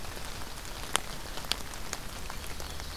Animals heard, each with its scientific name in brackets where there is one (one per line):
Ovenbird (Seiurus aurocapilla)